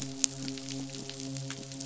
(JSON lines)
{"label": "biophony, midshipman", "recorder": "SoundTrap 500"}